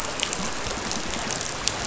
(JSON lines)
{"label": "biophony", "recorder": "SoundTrap 500"}